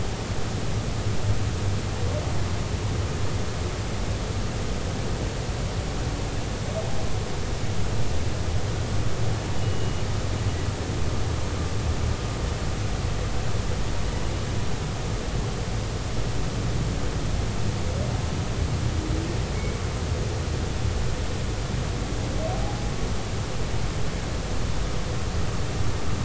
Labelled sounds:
9.6	10.0	humpback whale, 2.8 to 2.9 kHz
19.6	19.8	humpback whale, 2.1 to 2.3 kHz

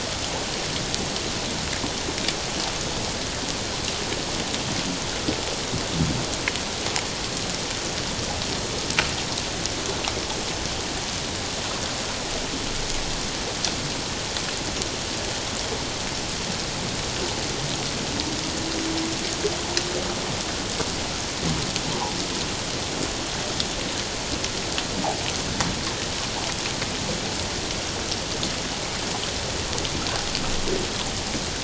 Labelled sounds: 21.9	22.2	humpback whale, 0.78 to 1.1 kHz

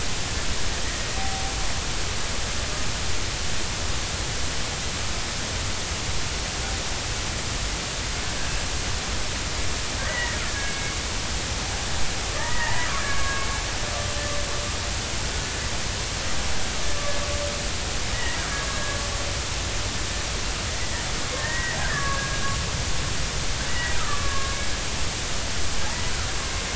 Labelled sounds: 10.0	10.9	killer whale, Bigg's (transient), 1.6 to 2.2 kHz
12.3	13.5	killer whale, Bigg's (transient), 0.83 to 2.0 kHz
18.1	19.0	killer whale, Bigg's (transient), 1.1 to 2.0 kHz
21.4	22.4	killer whale, Bigg's (transient), 1.1 to 2.0 kHz
23.7	24.6	killer whale, Bigg's (transient), 1.0 to 2.0 kHz

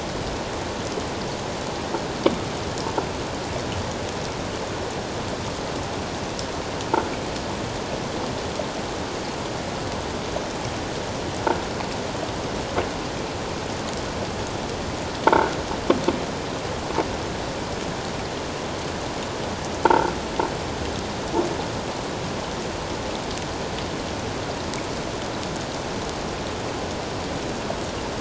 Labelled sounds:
15.3	15.5	croaking sound likely from a nearby submerged object, 1.3 to 1.6 kHz
19.8	20.1	croaking sound likely from a nearby submerged object, 0.81 to 1.6 kHz

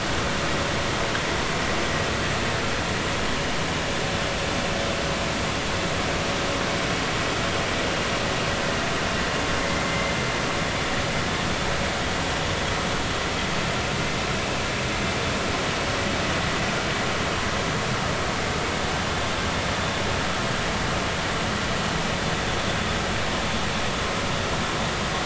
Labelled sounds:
9.6	10.1	vessel noise, 2.0 to 2.2 kHz

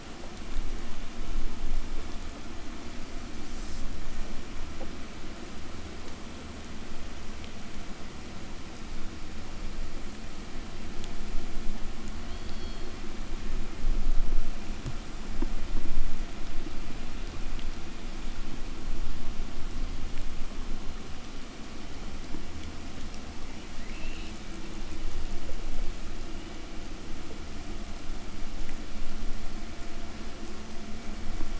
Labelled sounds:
12.1	13.2	killer whale, southern resident, 2.7 to 5.4 kHz
23.4	24.7	killer whale, southern resident, 1.3 to 6.4 kHz

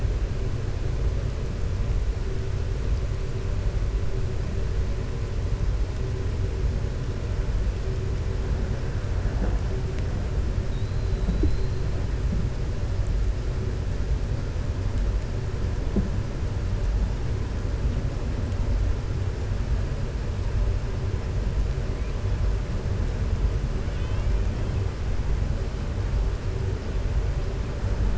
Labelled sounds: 23.8	24.3	killer whale, 1.5 to 3.6 kHz

